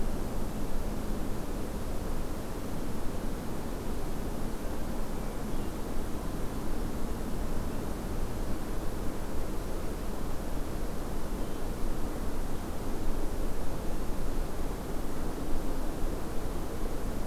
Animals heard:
forest ambience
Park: Acadia National Park